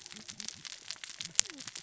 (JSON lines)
{"label": "biophony, cascading saw", "recorder": "SoundTrap 600 or HydroMoth"}